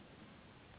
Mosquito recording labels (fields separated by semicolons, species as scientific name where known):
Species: Anopheles gambiae s.s.; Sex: female; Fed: unfed; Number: one; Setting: insect culture